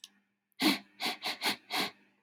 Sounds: Sniff